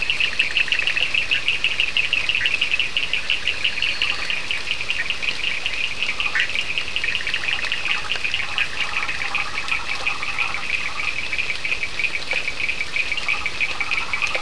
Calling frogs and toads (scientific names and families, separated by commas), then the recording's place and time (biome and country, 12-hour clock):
Boana bischoffi (Hylidae), Sphaenorhynchus surdus (Hylidae), Elachistocleis bicolor (Microhylidae), Boana prasina (Hylidae)
Atlantic Forest, Brazil, 2:00am